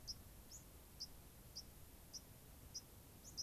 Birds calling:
White-crowned Sparrow (Zonotrichia leucophrys)

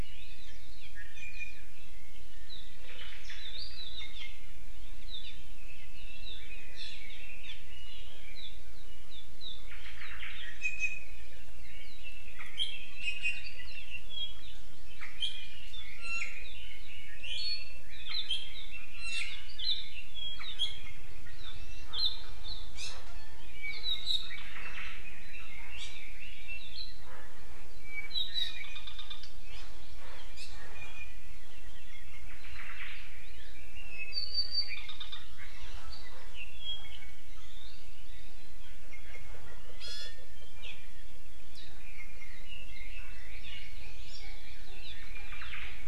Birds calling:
Hawaii Amakihi (Chlorodrepanis virens), Red-billed Leiothrix (Leiothrix lutea), Iiwi (Drepanis coccinea), Omao (Myadestes obscurus), Apapane (Himatione sanguinea)

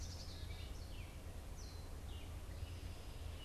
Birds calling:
Gray Catbird (Dumetella carolinensis), Black-capped Chickadee (Poecile atricapillus)

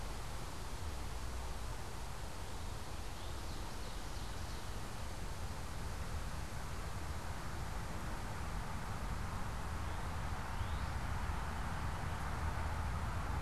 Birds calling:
Ovenbird (Seiurus aurocapilla), Northern Cardinal (Cardinalis cardinalis)

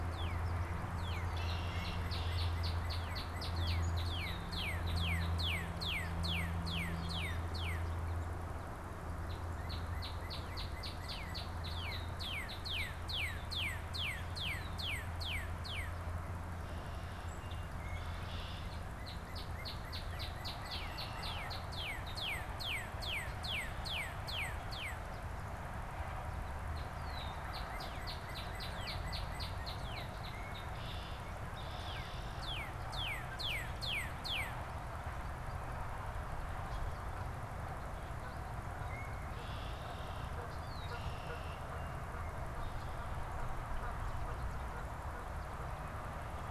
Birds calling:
Canada Goose (Branta canadensis), Red-winged Blackbird (Agelaius phoeniceus), Northern Cardinal (Cardinalis cardinalis)

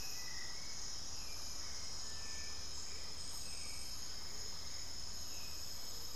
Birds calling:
unidentified bird, Hauxwell's Thrush (Turdus hauxwelli), Amazonian Motmot (Momotus momota), Little Tinamou (Crypturellus soui)

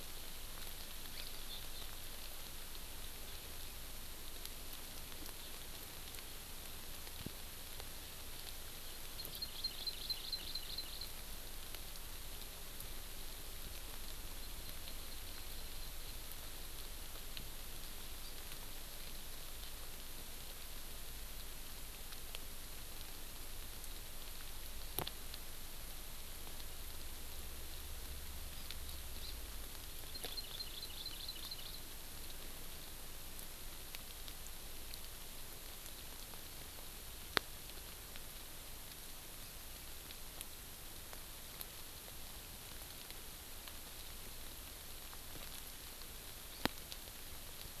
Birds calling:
Hawaii Amakihi (Chlorodrepanis virens)

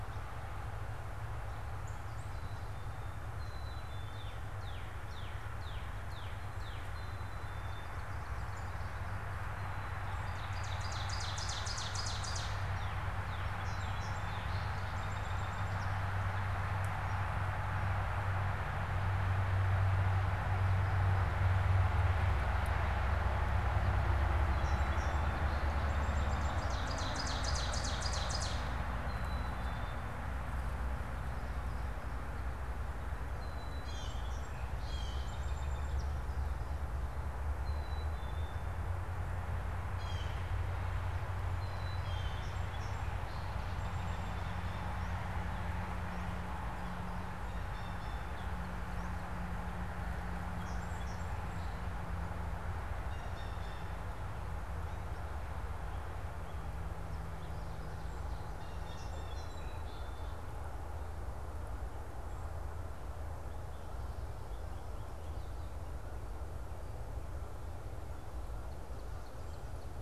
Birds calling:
Northern Cardinal (Cardinalis cardinalis), Song Sparrow (Melospiza melodia), Blue Jay (Cyanocitta cristata), Black-capped Chickadee (Poecile atricapillus), unidentified bird, Ovenbird (Seiurus aurocapilla)

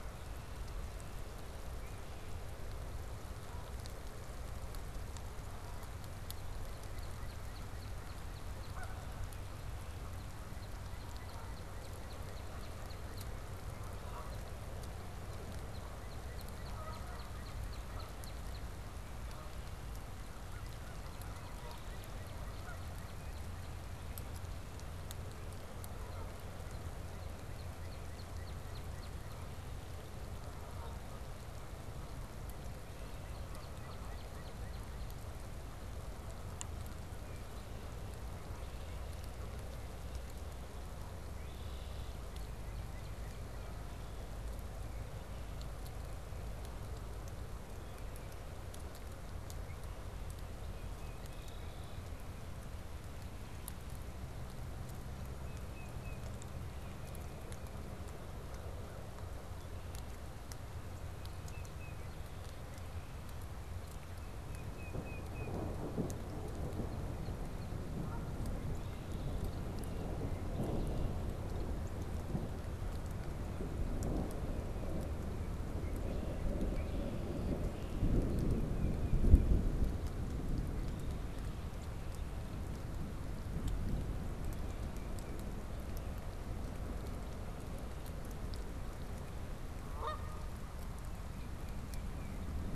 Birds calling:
American Crow (Corvus brachyrhynchos), Canada Goose (Branta canadensis), Northern Cardinal (Cardinalis cardinalis), Tufted Titmouse (Baeolophus bicolor), Red-winged Blackbird (Agelaius phoeniceus)

